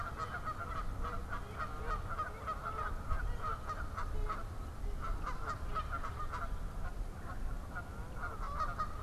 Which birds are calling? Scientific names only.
Branta canadensis, Melanerpes carolinus